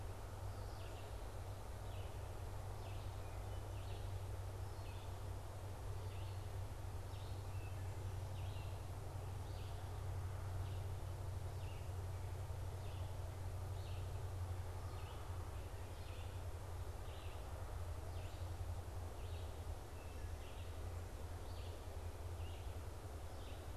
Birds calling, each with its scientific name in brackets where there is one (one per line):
Wood Thrush (Hylocichla mustelina)
Red-eyed Vireo (Vireo olivaceus)